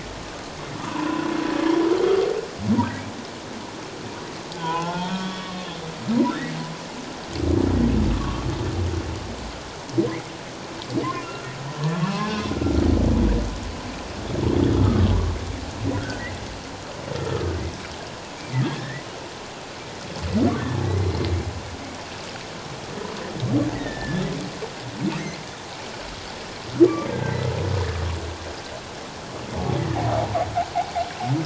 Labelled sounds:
0.9	1.3	humpback whale, 0.84 to 1.1 kHz
4.5	5.6	humpback whale, 0.78 to 3.4 kHz
8.1	8.5	humpback whale, 0.97 to 1.3 kHz
11.2	11.5	humpback whale, 1.3 to 1.5 kHz
14.7	15.1	humpback whale, 1.1 to 1.4 kHz
15.9	16.2	humpback whale, 1.3 to 1.7 kHz
17.1	17.5	humpback whale, 1.2 to 1.4 kHz
18.8	19.0	humpback whale, 1.7 to 2.1 kHz
23.7	24.2	humpback whale, 1.7 to 2.0 kHz
27.1	27.5	humpback whale, 1.5 to 2.1 kHz

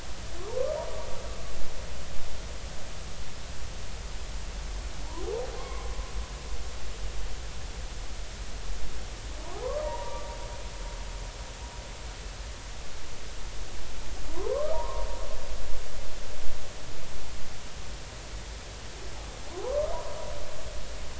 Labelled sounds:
5.6	5.9	humpback whale, 0.99 to 2.3 kHz
9.8	10.3	humpback whale, 0.86 to 2.0 kHz
14.3	15.1	humpback whale, 0.83 to 1.3 kHz
19.5	19.9	humpback whale, 0.80 to 1.2 kHz

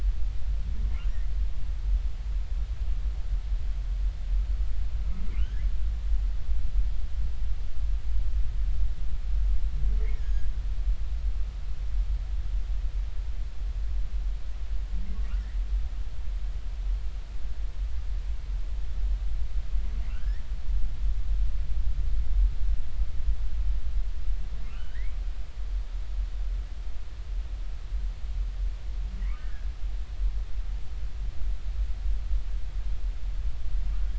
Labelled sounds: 1.1	1.3	humpback whale, 1.8 to 2.1 kHz
5.4	5.7	humpback whale, 1.4 to 1.8 kHz
10.1	10.5	humpback whale, 1.6 to 6.7 kHz
20.1	20.5	humpback whale, 1.3 to 2.1 kHz
24.7	25.2	humpback whale, 1.3 to 3.1 kHz
29.4	29.7	humpback whale, 1.6 to 1.9 kHz

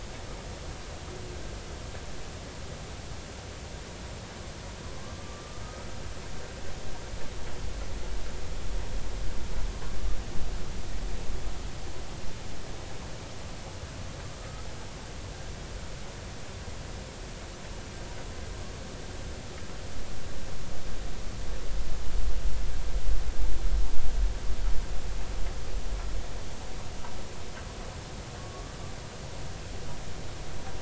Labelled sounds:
5.2	5.9	humpback whale, 1.1 to 1.4 kHz
14.4	14.7	humpback whale, 1.2 to 1.3 kHz

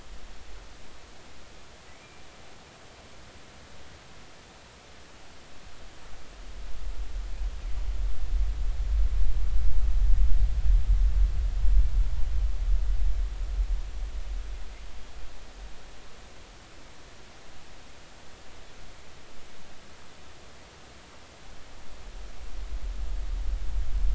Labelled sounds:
1.9	2.2	killer whale, northern resident, G clan, GI subclan, call N23i, 2.1 to 2.4 kHz

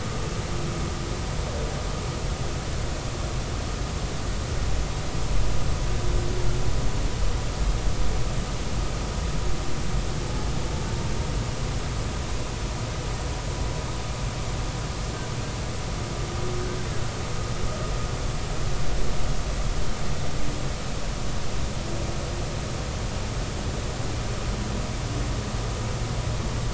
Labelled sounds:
10.2	10.5	humpback whale, 0.80 to 0.90 kHz

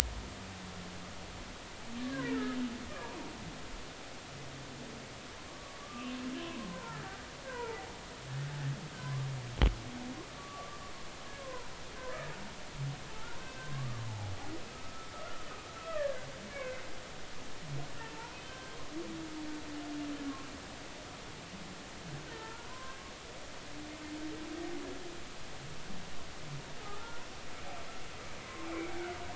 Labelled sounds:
2.2	2.6	humpback whale, 1.6 to 2.0 kHz
3.0	3.4	humpback whale, 1.4 to 1.8 kHz
5.4	7.8	humpback whale, 0.83 to 2.8 kHz
9.0	9.3	humpback whale, 0.96 to 1.2 kHz
10.4	10.8	humpback whale, 1.1 to 1.3 kHz
11.4	11.7	humpback whale, 0.90 to 1.1 kHz
13.6	14.0	humpback whale, 0.99 to 1.2 kHz
14.7	16.9	humpback whale, 1.1 to 2.3 kHz
18.1	18.8	humpback whale, 0.83 to 1.6 kHz
22.3	23.0	humpback whale, 0.93 to 1.9 kHz
27.0	27.2	humpback whale, 1.3 to 1.5 kHz
28.7	28.9	humpback whale, 2.1 to 2.4 kHz

